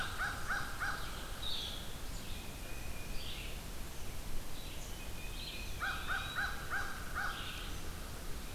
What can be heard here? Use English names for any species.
American Crow, Red-eyed Vireo, Blue-headed Vireo, Tufted Titmouse, Eastern Wood-Pewee